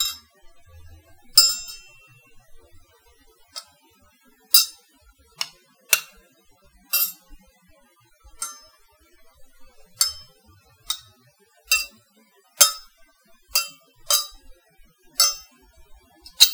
Is a wolf howling?
no